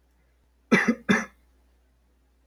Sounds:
Cough